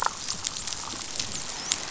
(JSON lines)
{"label": "biophony, dolphin", "recorder": "SoundTrap 500"}